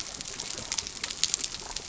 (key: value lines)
label: biophony
recorder: SoundTrap 300